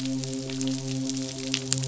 {"label": "biophony, midshipman", "recorder": "SoundTrap 500"}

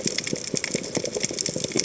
{"label": "biophony, chatter", "recorder": "HydroMoth"}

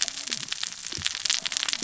{"label": "biophony, cascading saw", "recorder": "SoundTrap 600 or HydroMoth"}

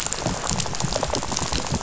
{"label": "biophony, rattle", "recorder": "SoundTrap 500"}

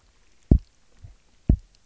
{"label": "biophony, double pulse", "recorder": "SoundTrap 300"}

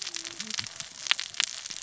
{"label": "biophony, cascading saw", "recorder": "SoundTrap 600 or HydroMoth"}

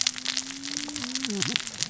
{"label": "biophony, cascading saw", "recorder": "SoundTrap 600 or HydroMoth"}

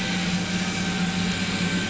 {"label": "anthrophony, boat engine", "recorder": "SoundTrap 500"}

